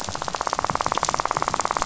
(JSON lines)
{"label": "biophony, rattle", "recorder": "SoundTrap 500"}